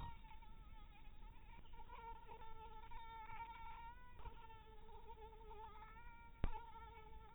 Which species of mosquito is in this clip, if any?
mosquito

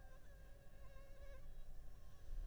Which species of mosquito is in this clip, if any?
Anopheles funestus s.s.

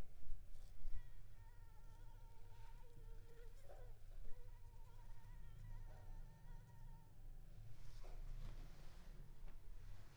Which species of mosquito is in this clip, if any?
Anopheles arabiensis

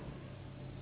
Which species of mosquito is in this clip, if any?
Anopheles gambiae s.s.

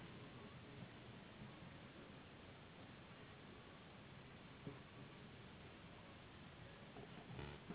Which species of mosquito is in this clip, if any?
Anopheles gambiae s.s.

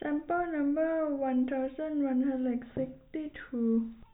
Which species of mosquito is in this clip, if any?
no mosquito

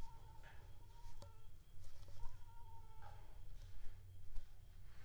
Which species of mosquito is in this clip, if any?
Aedes aegypti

